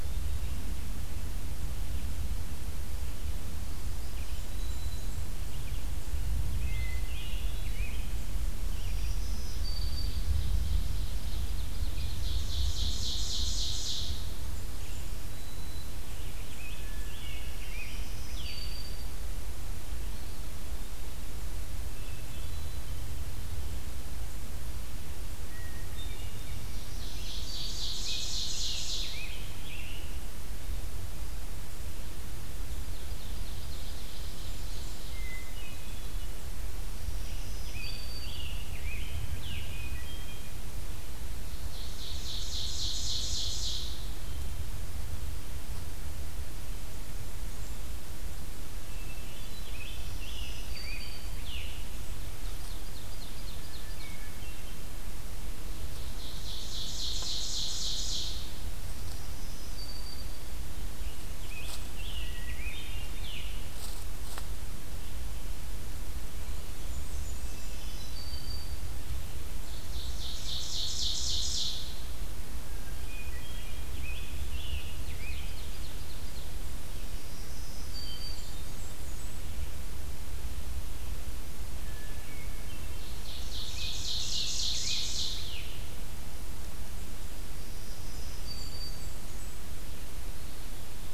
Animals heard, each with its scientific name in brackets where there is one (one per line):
Ovenbird (Seiurus aurocapilla)
Black-throated Green Warbler (Setophaga virens)
Hermit Thrush (Catharus guttatus)
Scarlet Tanager (Piranga olivacea)
Red-eyed Vireo (Vireo olivaceus)
Blackburnian Warbler (Setophaga fusca)